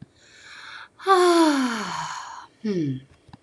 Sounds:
Sigh